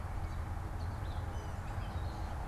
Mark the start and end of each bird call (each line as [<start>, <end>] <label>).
[0.00, 2.47] Gray Catbird (Dumetella carolinensis)